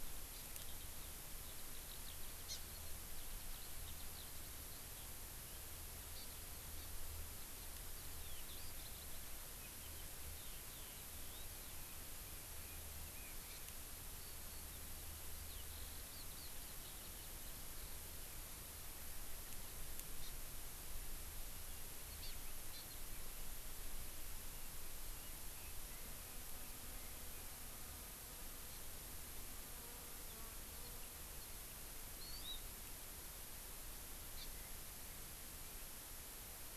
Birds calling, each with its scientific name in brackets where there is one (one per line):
Eurasian Skylark (Alauda arvensis)
Red-billed Leiothrix (Leiothrix lutea)
Hawaii Amakihi (Chlorodrepanis virens)